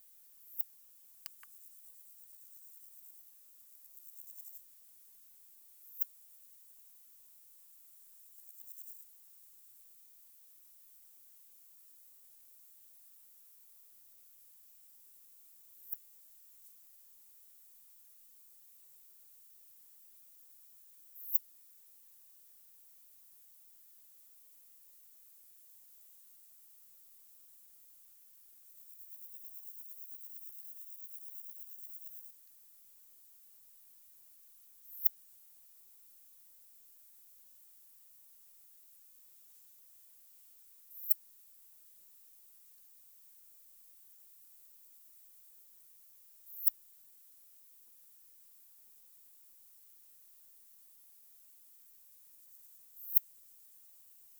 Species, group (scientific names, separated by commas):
Poecilimon affinis, Orthoptera